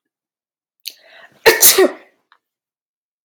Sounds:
Sneeze